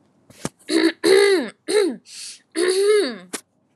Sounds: Throat clearing